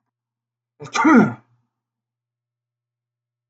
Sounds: Sneeze